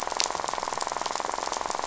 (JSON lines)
{"label": "biophony, rattle", "recorder": "SoundTrap 500"}